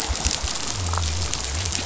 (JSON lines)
{"label": "biophony", "recorder": "SoundTrap 500"}